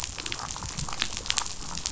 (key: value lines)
label: biophony, damselfish
recorder: SoundTrap 500